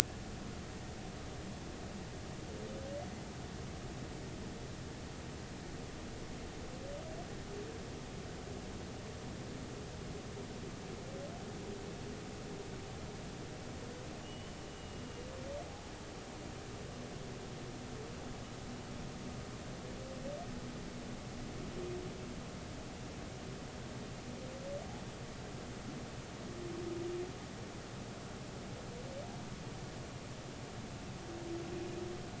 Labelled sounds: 14.2	15.0	humpback whale, 2.8 to 3.0 kHz

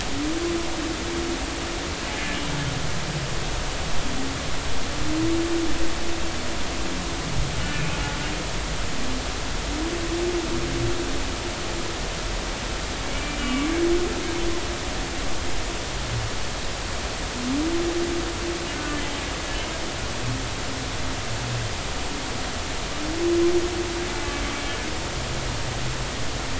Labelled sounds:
7.7	8.0	humpback whale, 2.3 to 2.6 kHz
13.1	13.7	humpback whale, 1.1 to 2.9 kHz

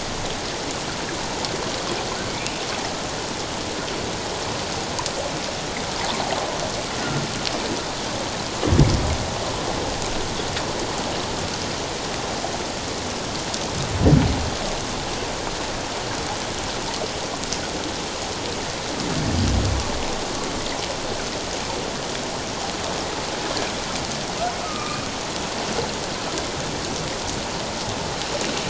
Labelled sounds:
24.6	25.0	humpback whale, 1.1 to 1.3 kHz

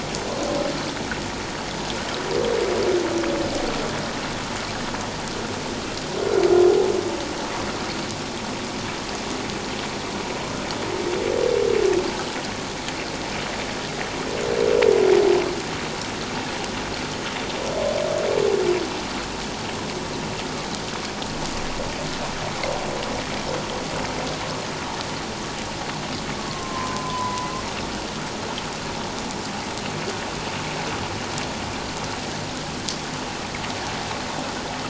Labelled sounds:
26.4	27.5	humpback whale, 0.91 to 1.2 kHz

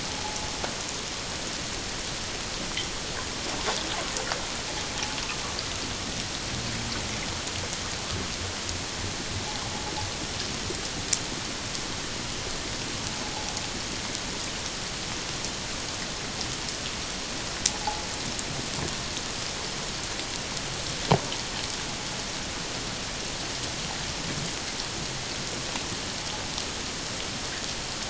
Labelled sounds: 0.2	0.5	invertebrate grinding on or near the hydrophone, 0.78 to 0.91 kHz
13.2	13.5	invertebrate grinding on or near the hydrophone, 0.78 to 0.94 kHz

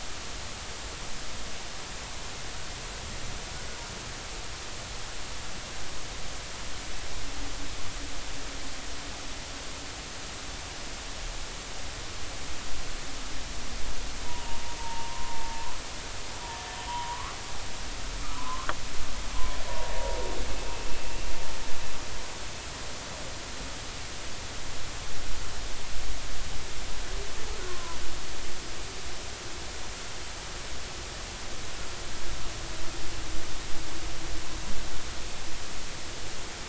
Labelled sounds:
14.3	15.8	humpback whale, 0.83 to 1.1 kHz
16.9	17.3	humpback whale, 0.90 to 1.4 kHz
18.3	18.7	humpback whale, 0.96 to 1.2 kHz
19.7	19.9	humpback whale, 0.86 to 0.99 kHz
27.7	28.0	humpback whale, 0.93 to 1.1 kHz

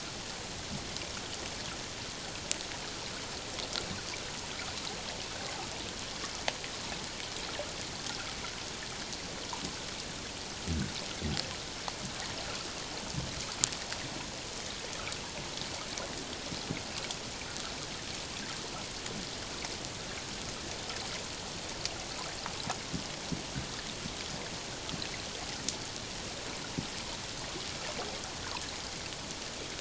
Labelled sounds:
8.1	8.3	humpback whale, 1.2 to 1.6 kHz

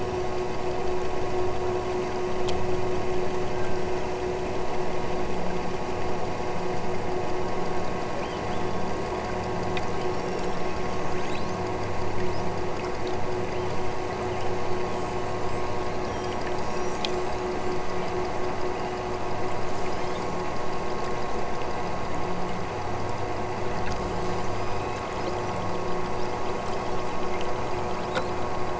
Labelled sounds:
8.1	9.2	killer whale, southern Alaska resident, 2.2 to 8.0 kHz
10.0	12.6	killer whale, southern Alaska resident, 2.8 to 8.0 kHz
14.8	15.7	killer whale, southern Alaska resident, 5.0 to 8.0 kHz
16.6	17.8	killer whale, southern Alaska resident, 5.0 to 8.0 kHz
18.8	19.2	killer whale, southern Alaska resident, 2.3 to 4.1 kHz
19.6	20.5	killer whale, southern Alaska resident, 2.6 to 8.0 kHz
24.1	25.1	killer whale, southern Alaska resident, 3.1 to 8.0 kHz
26.5	28.1	killer whale, southern Alaska resident, 2.7 to 7.4 kHz

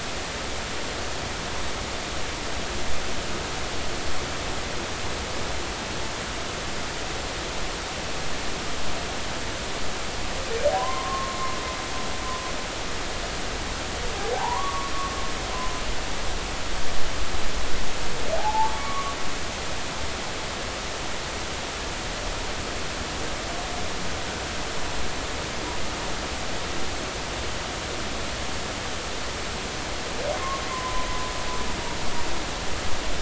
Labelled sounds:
10.8	11.6	humpback whale, 0.93 to 1.2 kHz
14.3	14.9	humpback whale, 0.80 to 1.2 kHz
18.3	19.2	humpback whale, 0.80 to 2.3 kHz
30.7	31.2	humpback whale, 0.96 to 1.1 kHz

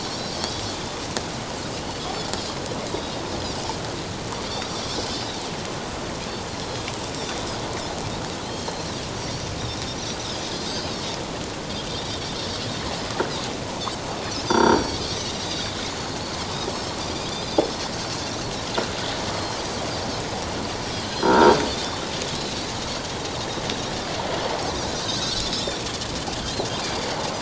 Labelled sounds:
0.8	1.0	Pacific white-sided dolphin, 3.4 to 3.6 kHz
2.9	3.2	Pacific white-sided dolphin, 3.7 to 4.8 kHz
4.5	5.4	Pacific white-sided dolphin, 2.9 to 5.9 kHz
6.5	6.9	Pacific white-sided dolphin, 4.1 to 4.2 kHz
8.4	9.5	Pacific white-sided dolphin, 3.8 to 6.5 kHz
10.6	10.9	Pacific white-sided dolphin, 5.9 to 6.5 kHz
11.9	12.1	Pacific white-sided dolphin, 3.5 to 4.0 kHz
14.4	15.0	croaking sound likely from a nearby submerged object, 4.2 to 6.2 kHz
14.5	15.0	Pacific white-sided dolphin, 0.88 to 8.0 kHz
15.5	15.7	Pacific white-sided dolphin, 3.4 to 3.9 kHz
16.7	17.7	Pacific white-sided dolphin, 3.3 to 6.2 kHz
19.3	19.6	Pacific white-sided dolphin, 4.1 to 4.5 kHz
21.1	21.4	croaking sound likely from a nearby submerged object, 4.8 to 5.1 kHz
21.2	22.6	Pacific white-sided dolphin, 1.3 to 5.7 kHz
25.0	25.7	Pacific white-sided dolphin, 3.5 to 6.9 kHz
26.8	27.1	Pacific white-sided dolphin, 4.6 to 4.9 kHz

